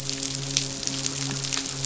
{"label": "biophony, midshipman", "recorder": "SoundTrap 500"}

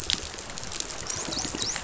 {"label": "biophony, dolphin", "recorder": "SoundTrap 500"}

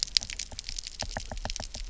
{"label": "biophony, knock", "recorder": "SoundTrap 300"}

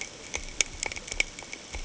{"label": "ambient", "recorder": "HydroMoth"}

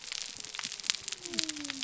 {"label": "biophony", "recorder": "SoundTrap 300"}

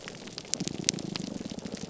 {"label": "biophony, grouper groan", "recorder": "SoundTrap 300"}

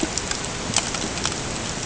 {"label": "ambient", "recorder": "HydroMoth"}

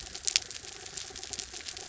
{"label": "anthrophony, mechanical", "recorder": "SoundTrap 300"}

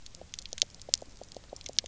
{"label": "biophony, pulse", "recorder": "SoundTrap 300"}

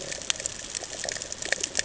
{"label": "ambient", "recorder": "HydroMoth"}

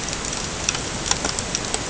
{"label": "ambient", "recorder": "HydroMoth"}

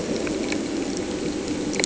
{"label": "anthrophony, boat engine", "recorder": "HydroMoth"}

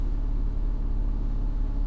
{"label": "anthrophony, boat engine", "recorder": "SoundTrap 300"}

